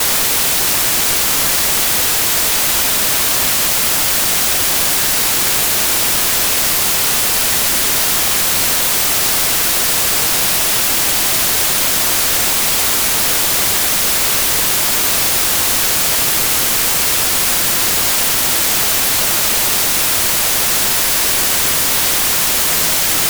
If a person is adjusting a radio and hears this, they are in between what things?
radio